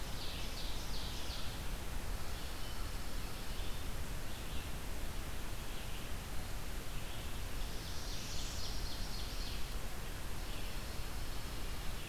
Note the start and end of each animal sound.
0.0s-2.1s: Ovenbird (Seiurus aurocapilla)
0.0s-12.1s: Red-eyed Vireo (Vireo olivaceus)
1.9s-3.7s: Pine Warbler (Setophaga pinus)
7.2s-9.8s: Ovenbird (Seiurus aurocapilla)
7.2s-8.8s: Northern Parula (Setophaga americana)
10.2s-12.1s: Pine Warbler (Setophaga pinus)

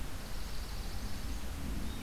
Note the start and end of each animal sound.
0.1s-1.5s: Swamp Sparrow (Melospiza georgiana)

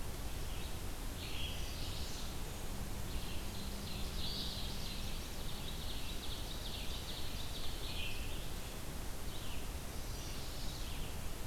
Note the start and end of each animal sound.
0.0s-11.5s: Red-eyed Vireo (Vireo olivaceus)
1.3s-2.3s: Chestnut-sided Warbler (Setophaga pensylvanica)
3.4s-5.0s: Ovenbird (Seiurus aurocapilla)
4.3s-5.5s: Chestnut-sided Warbler (Setophaga pensylvanica)
5.7s-7.7s: Ovenbird (Seiurus aurocapilla)

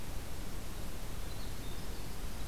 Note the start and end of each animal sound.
0.4s-2.5s: Winter Wren (Troglodytes hiemalis)

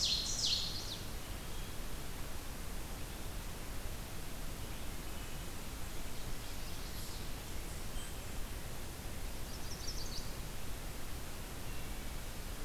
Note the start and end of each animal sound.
0.0s-1.4s: Ovenbird (Seiurus aurocapilla)
0.2s-1.2s: Chestnut-sided Warbler (Setophaga pensylvanica)
0.8s-1.9s: Eastern Wood-Pewee (Contopus virens)
4.6s-5.6s: Wood Thrush (Hylocichla mustelina)
5.0s-6.7s: Black-and-white Warbler (Mniotilta varia)
5.9s-7.3s: Ovenbird (Seiurus aurocapilla)
7.7s-8.5s: Wood Thrush (Hylocichla mustelina)
9.2s-10.5s: Chestnut-sided Warbler (Setophaga pensylvanica)
11.3s-12.3s: Wood Thrush (Hylocichla mustelina)

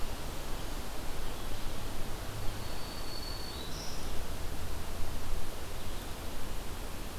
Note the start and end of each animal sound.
2.1s-4.3s: Black-throated Green Warbler (Setophaga virens)

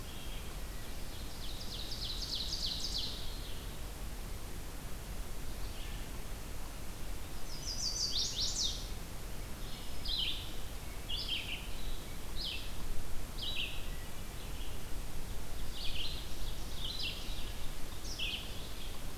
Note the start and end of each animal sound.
0.0s-0.6s: Wood Thrush (Hylocichla mustelina)
0.0s-19.2s: Red-eyed Vireo (Vireo olivaceus)
0.7s-3.5s: Ovenbird (Seiurus aurocapilla)
7.3s-8.9s: Chestnut-sided Warbler (Setophaga pensylvanica)
9.5s-10.6s: Black-throated Green Warbler (Setophaga virens)

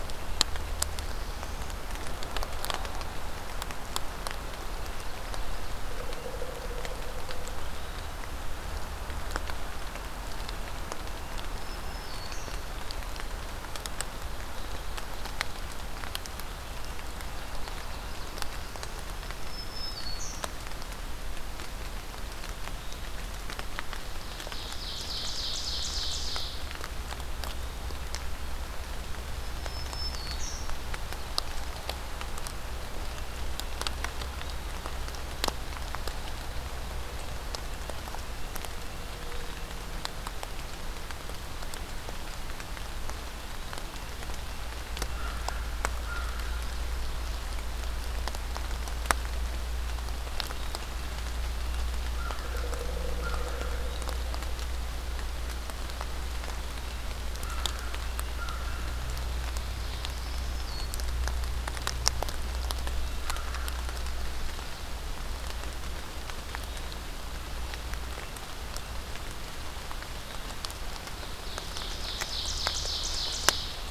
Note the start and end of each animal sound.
11.1s-12.8s: Black-throated Green Warbler (Setophaga virens)
19.0s-20.6s: Black-throated Green Warbler (Setophaga virens)
24.0s-26.7s: Ovenbird (Seiurus aurocapilla)
29.4s-30.8s: Black-throated Green Warbler (Setophaga virens)
45.0s-63.8s: American Crow (Corvus brachyrhynchos)
59.9s-61.1s: Black-throated Green Warbler (Setophaga virens)
70.8s-73.9s: Ovenbird (Seiurus aurocapilla)

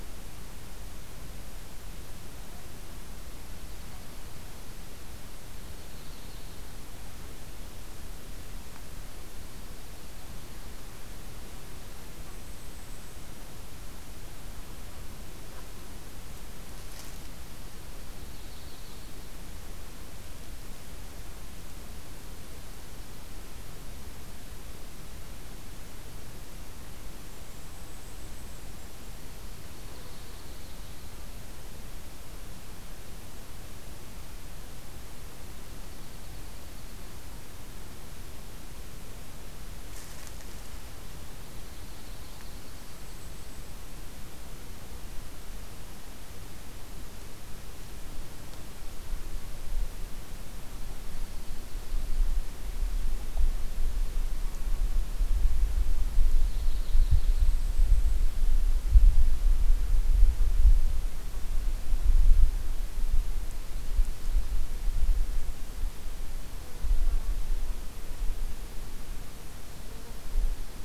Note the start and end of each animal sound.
5.6s-6.9s: Yellow-rumped Warbler (Setophaga coronata)
12.1s-13.4s: Golden-crowned Kinglet (Regulus satrapa)
18.1s-19.2s: Yellow-rumped Warbler (Setophaga coronata)
27.3s-29.2s: Golden-crowned Kinglet (Regulus satrapa)
29.6s-31.4s: Yellow-rumped Warbler (Setophaga coronata)
35.4s-37.5s: Dark-eyed Junco (Junco hyemalis)
41.4s-42.9s: Yellow-rumped Warbler (Setophaga coronata)
42.7s-44.2s: Golden-crowned Kinglet (Regulus satrapa)
56.2s-57.9s: Yellow-rumped Warbler (Setophaga coronata)
57.2s-58.5s: Golden-crowned Kinglet (Regulus satrapa)

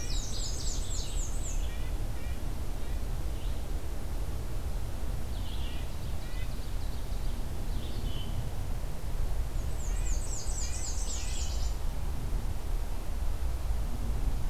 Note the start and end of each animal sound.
0.0s-1.3s: Canada Warbler (Cardellina canadensis)
0.0s-1.9s: Black-and-white Warbler (Mniotilta varia)
0.0s-3.5s: Red-eyed Vireo (Vireo olivaceus)
1.6s-3.1s: Red-breasted Nuthatch (Sitta canadensis)
5.1s-7.6s: Ovenbird (Seiurus aurocapilla)
5.4s-6.7s: Red-breasted Nuthatch (Sitta canadensis)
7.6s-11.8s: Red-eyed Vireo (Vireo olivaceus)
9.3s-11.6s: Black-and-white Warbler (Mniotilta varia)
9.7s-11.6s: Red-breasted Nuthatch (Sitta canadensis)
10.1s-12.1s: Nashville Warbler (Leiothlypis ruficapilla)

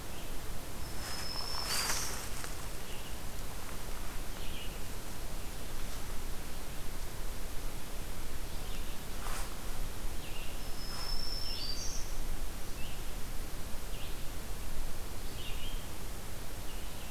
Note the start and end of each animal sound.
0.0s-9.2s: Red-eyed Vireo (Vireo olivaceus)
0.8s-2.3s: Black-throated Green Warbler (Setophaga virens)
10.0s-11.8s: Red-eyed Vireo (Vireo olivaceus)
10.4s-12.2s: Black-throated Green Warbler (Setophaga virens)
12.2s-17.1s: Red-eyed Vireo (Vireo olivaceus)

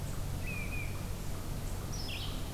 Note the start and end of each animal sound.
0.0s-2.5s: Red-eyed Vireo (Vireo olivaceus)
0.0s-2.5s: unknown mammal
0.4s-1.0s: unidentified call

